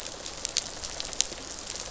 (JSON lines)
{"label": "biophony, rattle response", "recorder": "SoundTrap 500"}